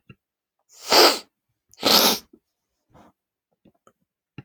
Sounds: Sniff